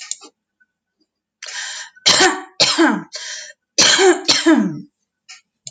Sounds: Cough